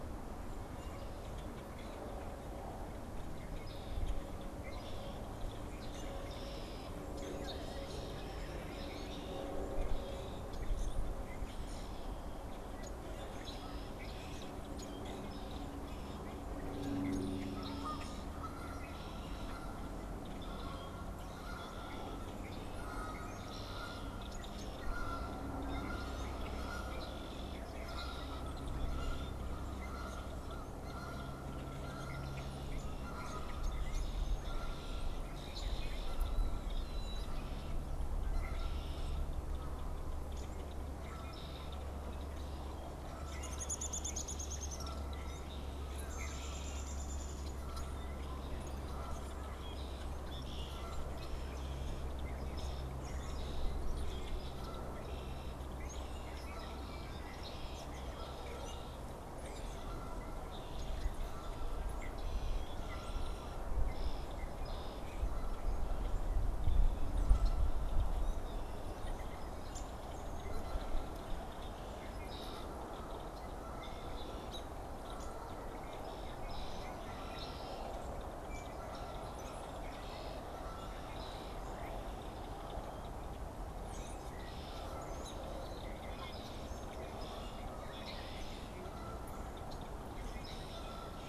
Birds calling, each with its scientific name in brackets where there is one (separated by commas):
Red-winged Blackbird (Agelaius phoeniceus), American Robin (Turdus migratorius), Downy Woodpecker (Dryobates pubescens), Canada Goose (Branta canadensis), unidentified bird, Common Grackle (Quiscalus quiscula)